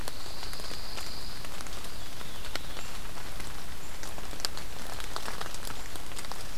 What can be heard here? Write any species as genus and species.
Setophaga pinus, Contopus virens